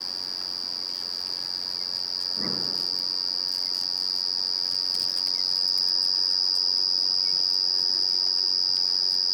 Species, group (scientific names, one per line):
Pteronemobius lineolatus
Orthoptera